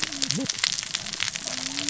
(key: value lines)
label: biophony, cascading saw
recorder: SoundTrap 600 or HydroMoth